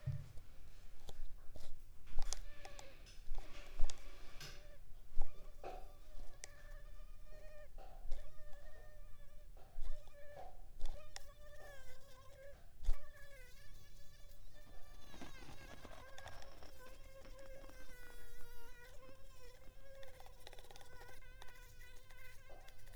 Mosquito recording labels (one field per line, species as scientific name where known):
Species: Culex pipiens complex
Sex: female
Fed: unfed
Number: one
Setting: cup